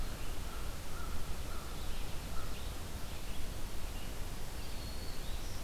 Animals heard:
American Crow (Corvus brachyrhynchos), Red-eyed Vireo (Vireo olivaceus), Black-throated Green Warbler (Setophaga virens)

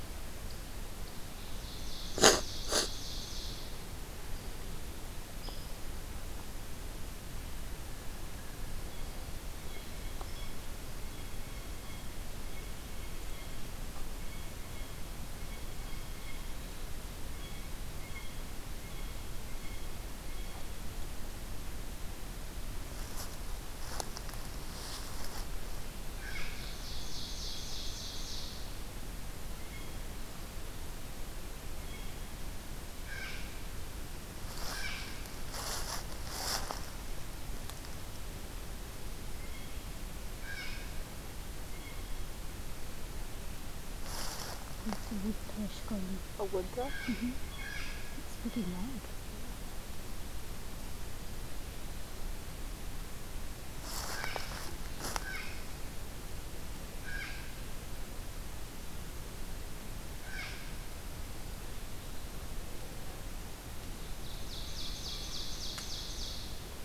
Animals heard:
Blue Jay (Cyanocitta cristata), Ovenbird (Seiurus aurocapilla)

